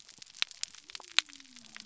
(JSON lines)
{"label": "biophony", "recorder": "SoundTrap 300"}